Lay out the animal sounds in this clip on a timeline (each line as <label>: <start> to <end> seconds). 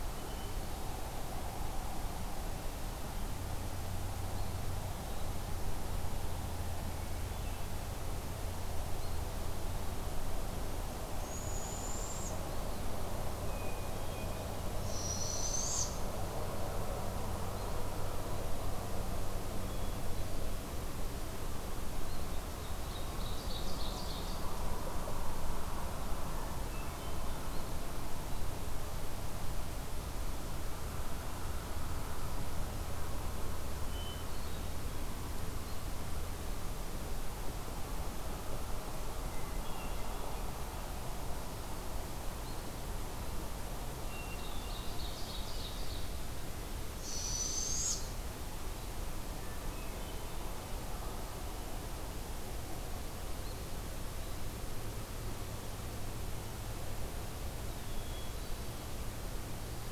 Barred Owl (Strix varia): 11.2 to 12.4 seconds
Eastern Wood-Pewee (Contopus virens): 12.4 to 12.9 seconds
Hermit Thrush (Catharus guttatus): 13.4 to 14.5 seconds
Barred Owl (Strix varia): 14.6 to 16.0 seconds
Hermit Thrush (Catharus guttatus): 19.6 to 20.8 seconds
Ovenbird (Seiurus aurocapilla): 22.7 to 24.5 seconds
Hermit Thrush (Catharus guttatus): 26.7 to 27.5 seconds
Hermit Thrush (Catharus guttatus): 33.8 to 34.8 seconds
Hermit Thrush (Catharus guttatus): 39.4 to 40.7 seconds
Ovenbird (Seiurus aurocapilla): 44.0 to 46.3 seconds
Barred Owl (Strix varia): 46.9 to 48.2 seconds
Hermit Thrush (Catharus guttatus): 49.2 to 50.6 seconds
Hermit Thrush (Catharus guttatus): 57.6 to 59.0 seconds